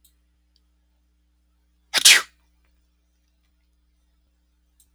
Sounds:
Sneeze